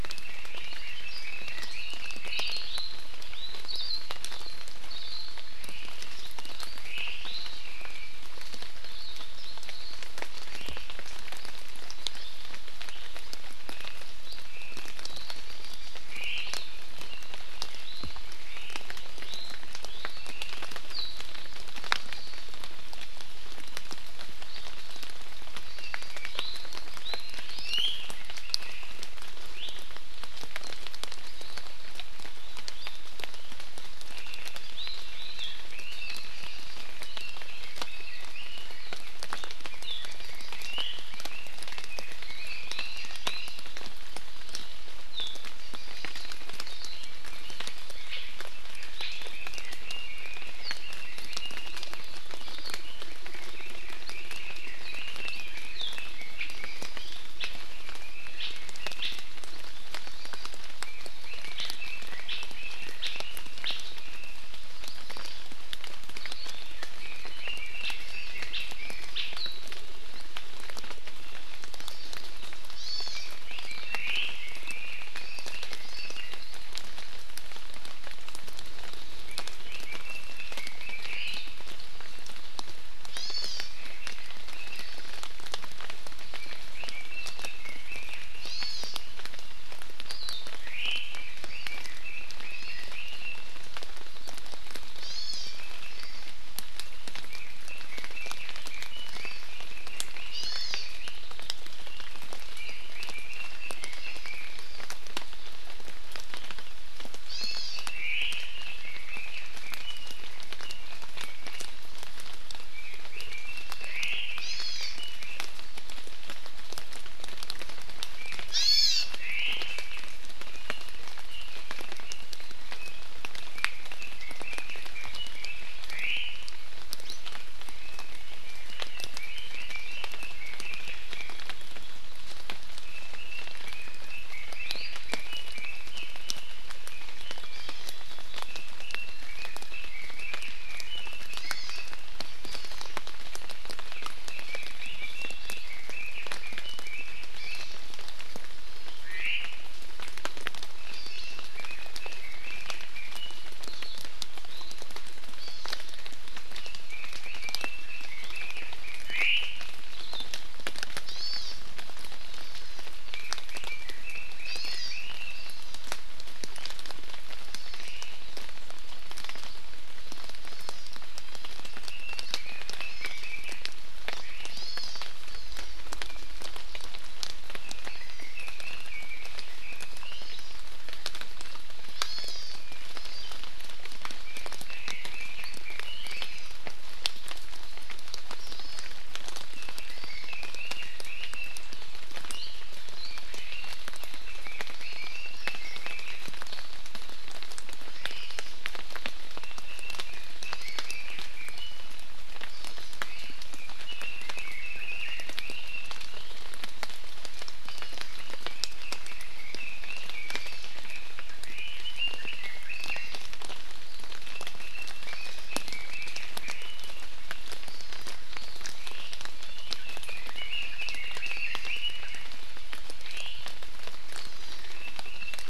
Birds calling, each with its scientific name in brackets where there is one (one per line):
Hawaii Amakihi (Chlorodrepanis virens)
Hawaii Akepa (Loxops coccineus)
Warbling White-eye (Zosterops japonicus)
Apapane (Himatione sanguinea)
Red-billed Leiothrix (Leiothrix lutea)
Iiwi (Drepanis coccinea)
Omao (Myadestes obscurus)